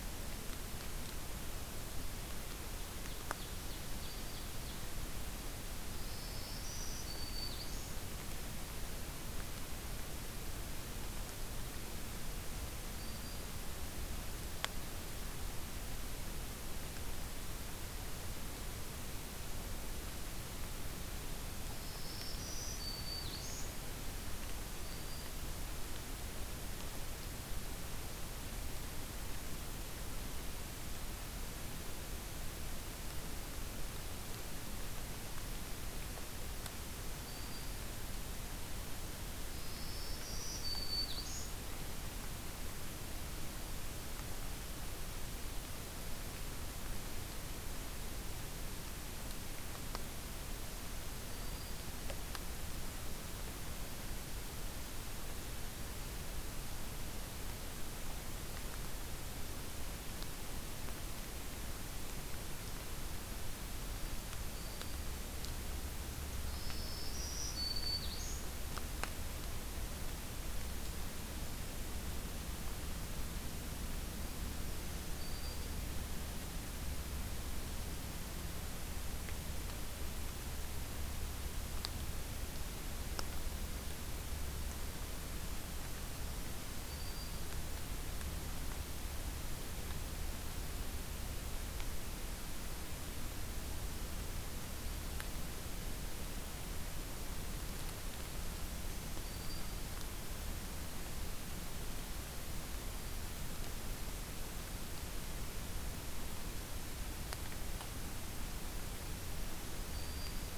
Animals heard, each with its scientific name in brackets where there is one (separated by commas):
Black-throated Green Warbler (Setophaga virens), Ovenbird (Seiurus aurocapilla)